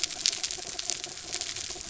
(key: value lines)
label: anthrophony, mechanical
recorder: SoundTrap 300